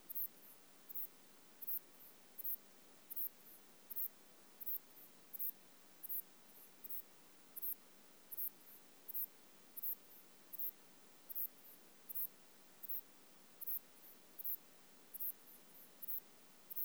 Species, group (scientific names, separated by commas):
Ephippiger ephippiger, Orthoptera